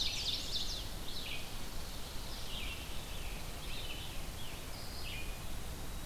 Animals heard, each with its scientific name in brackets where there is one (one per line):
Chestnut-sided Warbler (Setophaga pensylvanica)
Ovenbird (Seiurus aurocapilla)
Scarlet Tanager (Piranga olivacea)
Red-eyed Vireo (Vireo olivaceus)
Red Squirrel (Tamiasciurus hudsonicus)